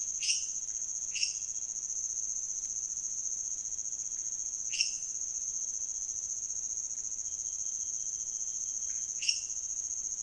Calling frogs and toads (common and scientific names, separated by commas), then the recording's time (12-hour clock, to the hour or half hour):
lesser tree frog (Dendropsophus minutus), pointedbelly frog (Leptodactylus podicipinus)
1am